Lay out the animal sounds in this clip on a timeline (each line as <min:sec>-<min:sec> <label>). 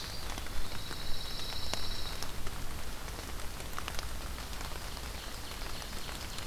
0:00.0-0:01.0 Eastern Wood-Pewee (Contopus virens)
0:00.5-0:02.4 Pine Warbler (Setophaga pinus)
0:04.6-0:06.5 Ovenbird (Seiurus aurocapilla)